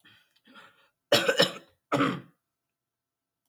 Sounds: Throat clearing